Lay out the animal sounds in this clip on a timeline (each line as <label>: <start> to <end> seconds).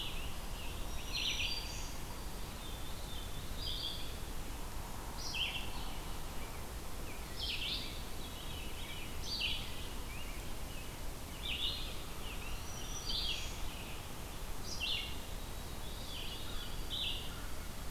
Scarlet Tanager (Piranga olivacea): 0.0 to 2.0 seconds
Red-eyed Vireo (Vireo olivaceus): 0.0 to 17.9 seconds
Black-throated Green Warbler (Setophaga virens): 0.8 to 2.2 seconds
Veery (Catharus fuscescens): 2.4 to 3.7 seconds
Rose-breasted Grosbeak (Pheucticus ludovicianus): 6.2 to 13.0 seconds
Veery (Catharus fuscescens): 8.1 to 9.1 seconds
Black-throated Green Warbler (Setophaga virens): 12.5 to 13.7 seconds
White-throated Sparrow (Zonotrichia albicollis): 15.3 to 17.6 seconds
Veery (Catharus fuscescens): 15.5 to 16.8 seconds